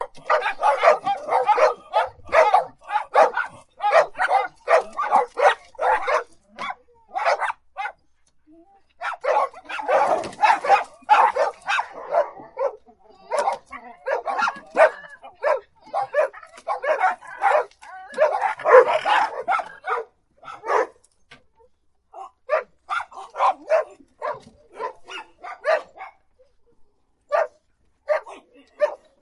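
A dog barks. 0:00.3 - 0:07.9
A dog barks. 0:09.0 - 0:20.9
A dog barks in the distance. 0:22.1 - 0:26.2
A dog barks in the distance. 0:27.3 - 0:29.0

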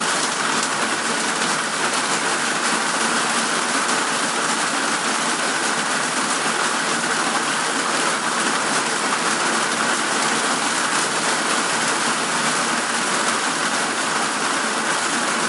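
Heavy continuous loud rain. 0:00.0 - 0:15.5
Heavy rain hitting a metal structure, creating a loud, repetitive metallic sound. 0:03.8 - 0:15.1

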